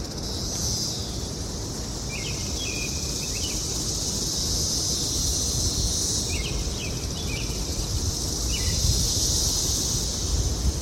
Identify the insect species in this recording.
Magicicada cassini